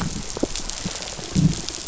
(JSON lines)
{"label": "biophony, rattle response", "recorder": "SoundTrap 500"}